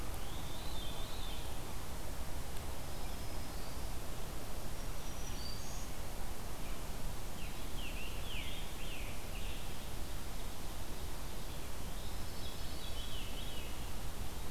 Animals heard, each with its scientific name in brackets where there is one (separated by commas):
Black-throated Green Warbler (Setophaga virens), Veery (Catharus fuscescens), Scarlet Tanager (Piranga olivacea)